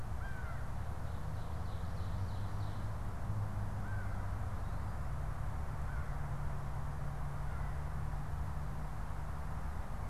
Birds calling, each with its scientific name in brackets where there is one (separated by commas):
Ovenbird (Seiurus aurocapilla), American Crow (Corvus brachyrhynchos)